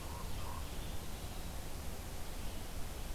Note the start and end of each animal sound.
[0.00, 0.71] Common Raven (Corvus corax)
[0.33, 3.14] Red-eyed Vireo (Vireo olivaceus)

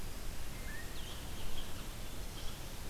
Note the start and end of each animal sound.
[0.75, 2.89] Red-eyed Vireo (Vireo olivaceus)
[0.91, 2.89] unknown mammal

